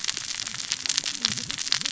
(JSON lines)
{"label": "biophony, cascading saw", "recorder": "SoundTrap 600 or HydroMoth"}